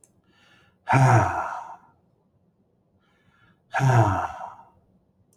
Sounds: Sigh